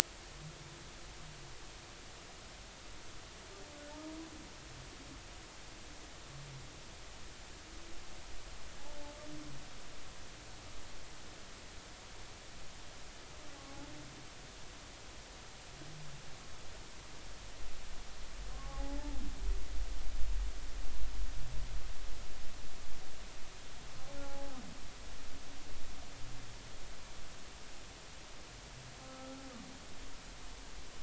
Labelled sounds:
18.5	19.0	humpback whale, 0.80 to 1.2 kHz
24.2	24.6	humpback whale, 0.80 to 0.90 kHz
30.0	30.4	humpback whale, 1.3 to 1.4 kHz

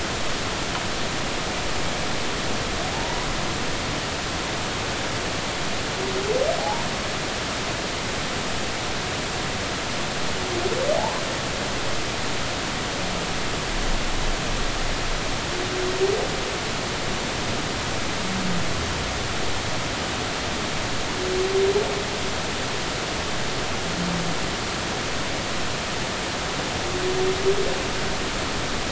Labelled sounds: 2.9	3.2	humpback whale, 0.80 to 0.99 kHz
6.6	6.8	humpback whale, 0.80 to 0.99 kHz
11.0	11.2	humpback whale, 0.80 to 1.1 kHz

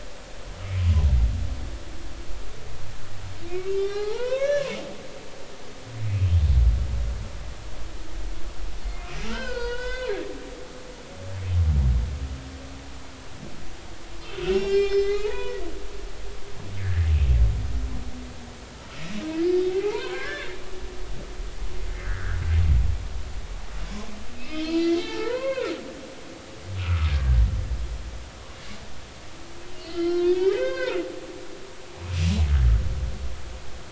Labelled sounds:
3.8	4.7	humpback whale, 0.80 to 5.9 kHz
6.1	6.3	humpback whale, 2.4 to 2.6 kHz
9.2	10.1	humpback whale, 0.90 to 6.7 kHz
14.4	15.6	humpback whale, 0.80 to 6.8 kHz
16.8	17.1	humpback whale, 1.5 to 2.0 kHz
19.4	20.5	humpback whale, 0.80 to 4.8 kHz
22.0	22.4	humpback whale, 1.2 to 2.0 kHz
24.4	25.7	humpback whale, 0.83 to 4.8 kHz
26.8	27.4	humpback whale, 1.1 to 1.7 kHz
29.7	31.0	humpback whale, 0.86 to 4.8 kHz

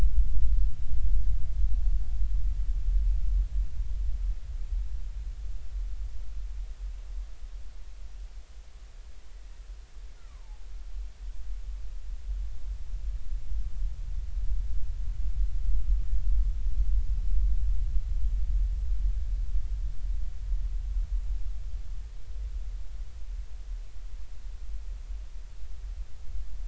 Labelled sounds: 10.2	10.4	killer whale, Bigg's (transient), 0.96 to 1.5 kHz

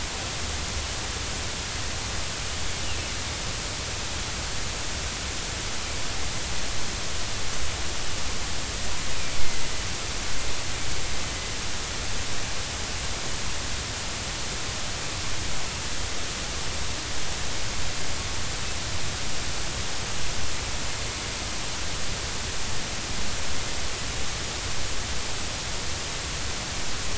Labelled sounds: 9.3	9.6	killer whale, northern resident, A clan, AA subclan, 2.0 to 2.2 kHz

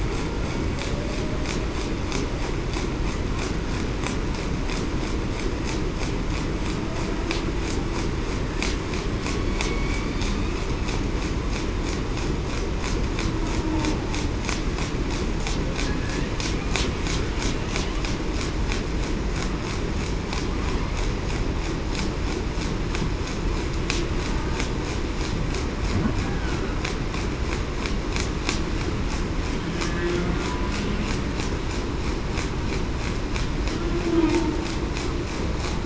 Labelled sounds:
9.6	10.2	humpback whale, 2.2 to 2.4 kHz
26.3	26.6	humpback whale, 1.3 to 1.7 kHz

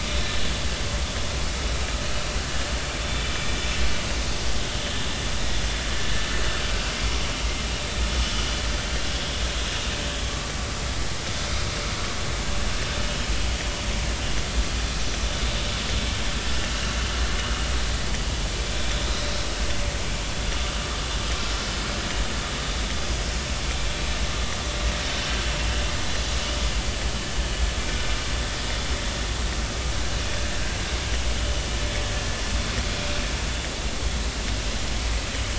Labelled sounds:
3.0	3.3	vessel noise, 3.4 to 3.6 kHz
7.0	7.2	vessel noise, 1.7 to 1.8 kHz

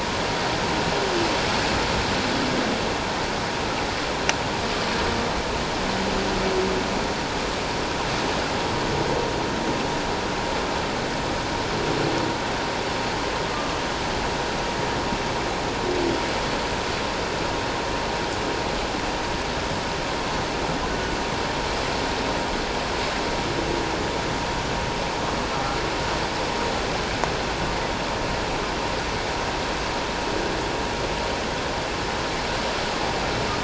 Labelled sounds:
20.9	21.2	humpback whale, 1.4 to 1.5 kHz

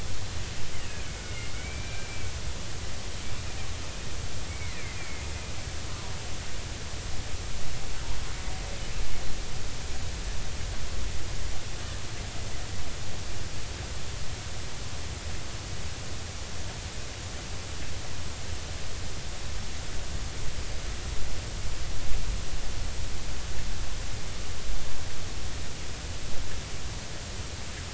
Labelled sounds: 1.2	2.3	killer whale, Bigg's (transient), 1.4 to 2.4 kHz
4.5	5.3	killer whale, Bigg's (transient), 1.7 to 2.5 kHz

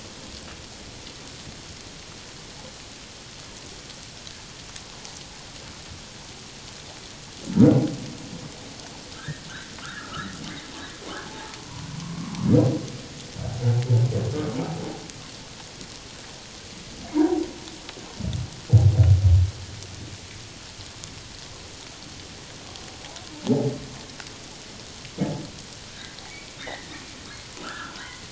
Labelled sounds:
9.1	10.4	humpback whale, 1.2 to 2.0 kHz
11.3	12.3	humpback whale, 0.78 to 1.2 kHz
17.1	17.4	humpback whale, 0.88 to 1.0 kHz
23.4	23.7	humpback whale, 0.78 to 0.91 kHz
26.6	28.2	humpback whale, 1.2 to 2.2 kHz

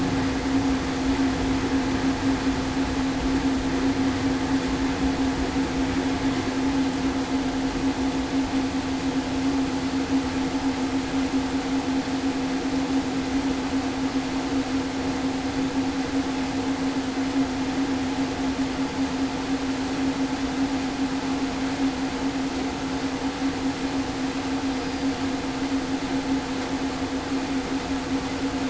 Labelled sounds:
24.7	25.1	killer whale, southern resident, 4.7 to 5.0 kHz

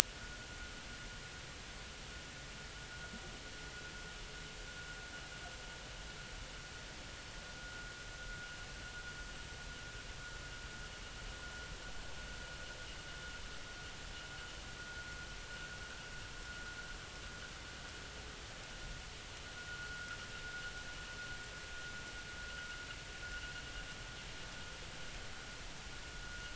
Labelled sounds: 7.6	7.9	vessel noise, 1.2 to 1.6 kHz
19.6	20.1	vessel noise, 1.3 to 1.5 kHz

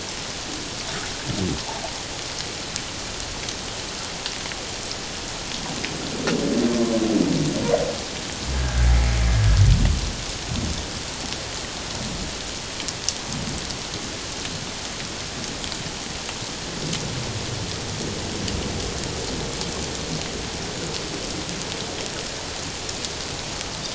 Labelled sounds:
8.5	8.9	humpback whale, 1.5 to 1.7 kHz

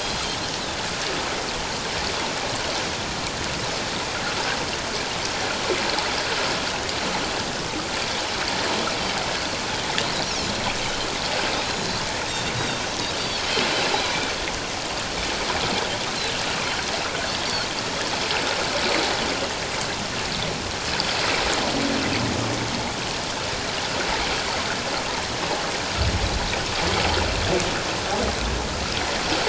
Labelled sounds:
0.0	0.4	Pacific white-sided dolphin, 3.1 to 5.0 kHz

